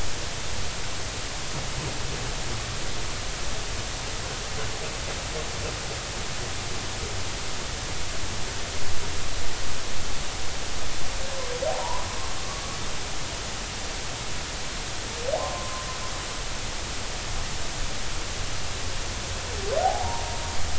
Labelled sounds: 11.7	12.0	humpback whale, 0.80 to 1.1 kHz
15.3	15.9	humpback whale, 0.80 to 1.1 kHz
19.8	20.2	humpback whale, 0.80 to 1.2 kHz

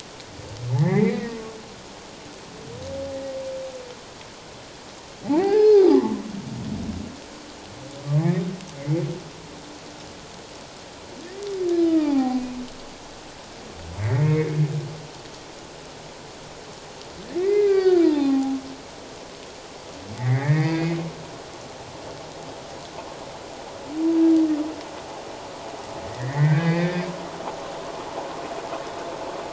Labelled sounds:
0.7	1.4	humpback whale, 1.6 to 2.6 kHz
5.4	6.2	humpback whale, 0.78 to 2.2 kHz
8.2	9.0	humpback whale, 1.7 to 2.5 kHz
11.9	12.4	humpback whale, 0.78 to 2.6 kHz
14.0	14.5	humpback whale, 1.8 to 2.3 kHz
17.4	18.6	humpback whale, 0.78 to 4.8 kHz
20.2	21.0	humpback whale, 1.6 to 2.6 kHz
26.1	27.0	humpback whale, 1.4 to 3.7 kHz

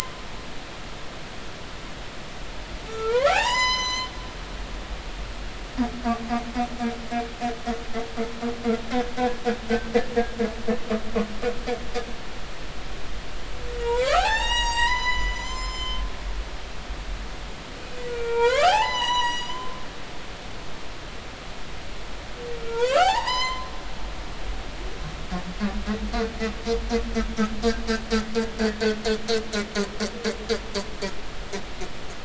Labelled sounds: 2.9	4.3	humpback whale, 0.80 to 8.0 kHz
9.7	9.9	humpback whale, 1.5 to 1.6 kHz
13.8	16.0	humpback whale, 0.80 to 8.0 kHz
17.8	19.8	humpback whale, 0.80 to 8.0 kHz
22.6	23.7	humpback whale, 0.80 to 8.0 kHz

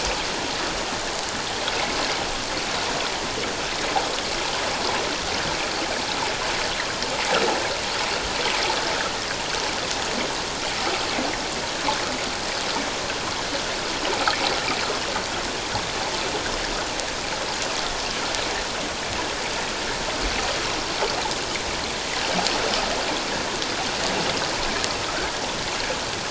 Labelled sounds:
25.1	25.3	water noise, 1.2 to 1.7 kHz

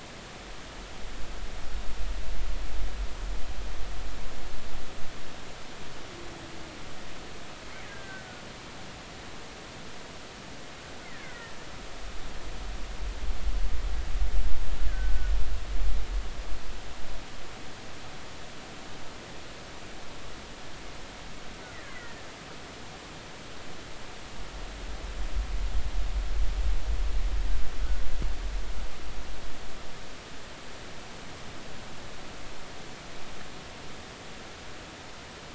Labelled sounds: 7.8	8.3	killer whale, Bigg's (transient), 1.5 to 1.7 kHz
11.0	11.6	killer whale, Bigg's (transient), 1.3 to 2.2 kHz
14.9	15.3	killer whale, Bigg's (transient), 1.4 to 1.8 kHz
21.9	22.2	killer whale, Bigg's (transient), 1.8 to 2.1 kHz

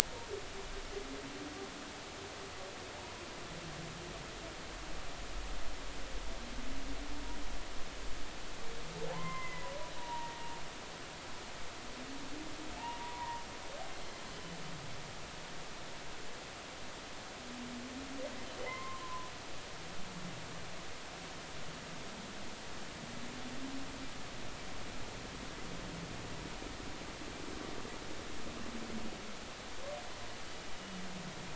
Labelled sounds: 9.1	9.7	humpback whale, 0.80 to 2.2 kHz
10.0	10.6	humpback whale, 0.90 to 1.9 kHz
12.8	13.4	humpback whale, 0.83 to 2.9 kHz
18.6	19.3	humpback whale, 0.86 to 2.2 kHz

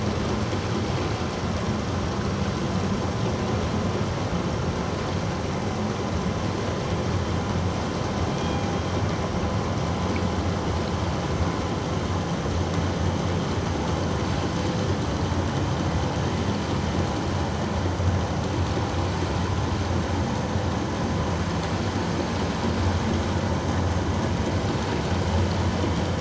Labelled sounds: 8.4	8.7	killer whale, northern resident, G clan, 2.3 to 2.6 kHz

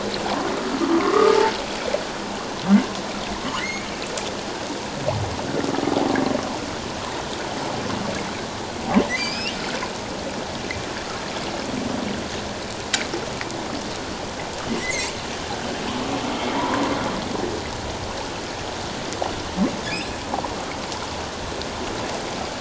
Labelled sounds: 1.0	1.4	humpback whale, 1.0 to 1.3 kHz
3.6	3.9	humpback whale, 1.8 to 2.4 kHz
9.1	9.6	humpback whale, 1.9 to 5.8 kHz
14.8	15.2	humpback whale, 1.9 to 2.4 kHz
16.5	16.8	humpback whale, 0.88 to 1.2 kHz

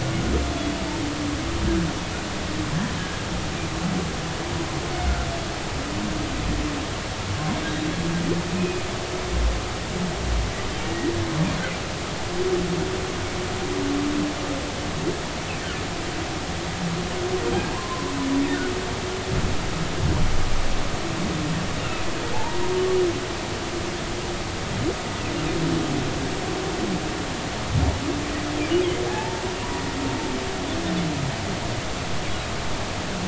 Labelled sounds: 8.6	8.8	humpback whale, 2.4 to 2.6 kHz
10.8	11.1	humpback whale, 1.8 to 2.0 kHz
17.7	18.1	humpback whale, 0.93 to 1.2 kHz
22.3	22.6	humpback whale, 0.80 to 0.99 kHz
29.1	29.4	humpback whale, 0.80 to 0.99 kHz

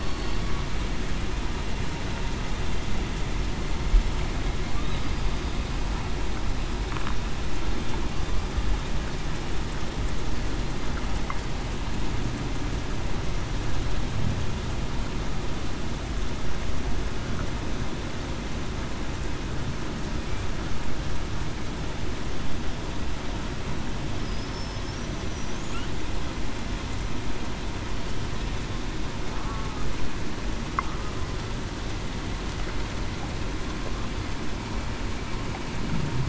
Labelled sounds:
0.0	0.4	killer whale, southern resident, 4.4 to 4.5 kHz

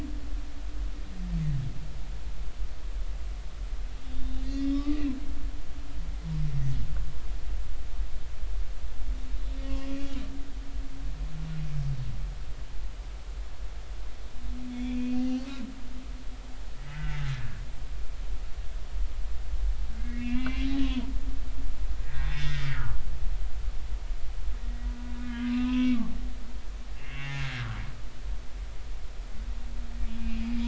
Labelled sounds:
4.0	5.0	humpback whale, 1.1 to 3.7 kHz
14.7	15.4	humpback whale, 2.4 to 3.6 kHz
16.8	17.6	humpback whale, 1.5 to 2.1 kHz
20.0	21.1	humpback whale, 0.90 to 2.9 kHz
22.0	23.0	humpback whale, 1.1 to 3.7 kHz
25.2	26.0	humpback whale, 0.96 to 2.8 kHz
27.0	27.7	humpback whale, 0.80 to 3.0 kHz
30.0	30.6	humpback whale, 2.3 to 2.8 kHz

